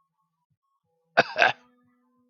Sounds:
Cough